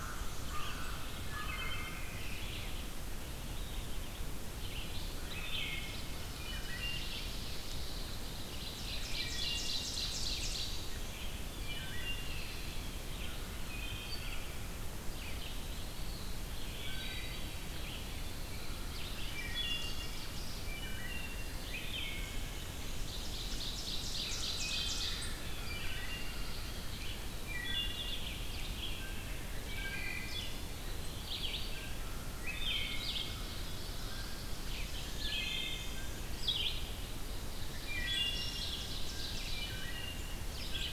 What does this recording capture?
Black-and-white Warbler, American Crow, Red-eyed Vireo, Wood Thrush, Ovenbird, Pine Warbler, Eastern Wood-Pewee, Blue Jay